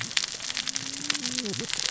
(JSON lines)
{"label": "biophony, cascading saw", "recorder": "SoundTrap 600 or HydroMoth"}